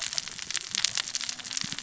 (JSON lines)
{"label": "biophony, cascading saw", "recorder": "SoundTrap 600 or HydroMoth"}